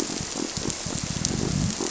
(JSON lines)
{"label": "biophony", "recorder": "SoundTrap 300"}